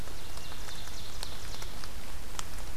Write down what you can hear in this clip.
Ovenbird, Hermit Thrush